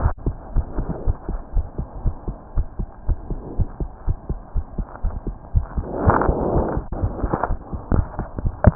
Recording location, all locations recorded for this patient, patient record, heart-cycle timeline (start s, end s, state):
aortic valve (AV)
aortic valve (AV)+pulmonary valve (PV)+tricuspid valve (TV)+mitral valve (MV)
#Age: Child
#Sex: Female
#Height: 115.0 cm
#Weight: 18.9 kg
#Pregnancy status: False
#Murmur: Absent
#Murmur locations: nan
#Most audible location: nan
#Systolic murmur timing: nan
#Systolic murmur shape: nan
#Systolic murmur grading: nan
#Systolic murmur pitch: nan
#Systolic murmur quality: nan
#Diastolic murmur timing: nan
#Diastolic murmur shape: nan
#Diastolic murmur grading: nan
#Diastolic murmur pitch: nan
#Diastolic murmur quality: nan
#Outcome: Normal
#Campaign: 2015 screening campaign
0.00	0.53	unannotated
0.53	0.66	S1
0.66	0.74	systole
0.74	0.86	S2
0.86	1.02	diastole
1.02	1.16	S1
1.16	1.28	systole
1.28	1.40	S2
1.40	1.54	diastole
1.54	1.66	S1
1.66	1.78	systole
1.78	1.86	S2
1.86	2.02	diastole
2.02	2.14	S1
2.14	2.28	systole
2.28	2.36	S2
2.36	2.56	diastole
2.56	2.66	S1
2.66	2.78	systole
2.78	2.88	S2
2.88	3.06	diastole
3.06	3.18	S1
3.18	3.30	systole
3.30	3.42	S2
3.42	3.58	diastole
3.58	3.70	S1
3.70	3.80	systole
3.80	3.90	S2
3.90	4.06	diastole
4.06	4.16	S1
4.16	4.30	systole
4.30	4.40	S2
4.40	4.56	diastole
4.56	4.64	S1
4.64	4.76	systole
4.76	4.86	S2
4.86	5.04	diastole
5.04	5.16	S1
5.16	5.26	systole
5.26	5.36	S2
5.36	5.53	diastole
5.53	5.68	S1
5.68	5.76	systole
5.76	5.86	S2
5.86	8.75	unannotated